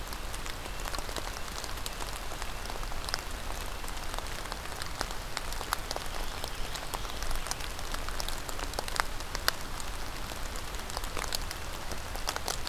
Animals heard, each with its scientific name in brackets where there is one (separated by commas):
Black-throated Green Warbler (Setophaga virens), Red-breasted Nuthatch (Sitta canadensis)